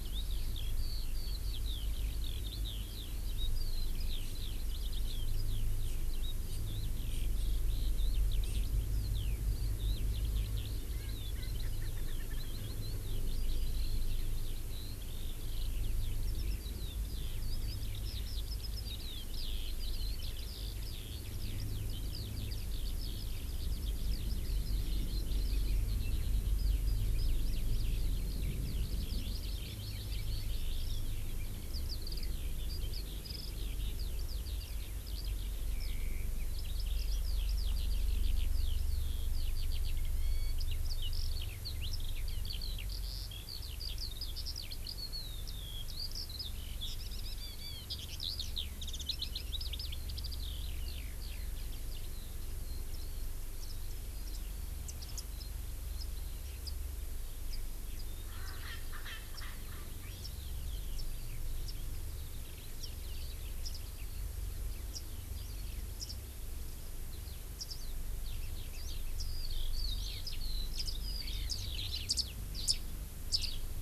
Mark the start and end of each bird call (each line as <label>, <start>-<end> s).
Eurasian Skylark (Alauda arvensis), 0.0-52.4 s
Erckel's Francolin (Pternistis erckelii), 10.9-12.5 s
Erckel's Francolin (Pternistis erckelii), 58.2-60.1 s
Eurasian Skylark (Alauda arvensis), 60.1-65.9 s
Eurasian Skylark (Alauda arvensis), 67.7-67.9 s
Eurasian Skylark (Alauda arvensis), 68.2-72.1 s
Eurasian Skylark (Alauda arvensis), 72.5-72.8 s
Eurasian Skylark (Alauda arvensis), 73.3-73.6 s